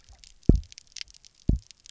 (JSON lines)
{"label": "biophony, double pulse", "recorder": "SoundTrap 300"}